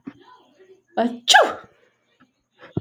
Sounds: Sneeze